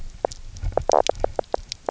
{"label": "biophony, knock croak", "recorder": "SoundTrap 300"}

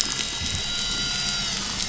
{"label": "anthrophony, boat engine", "recorder": "SoundTrap 500"}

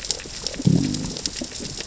{"label": "biophony, growl", "recorder": "SoundTrap 600 or HydroMoth"}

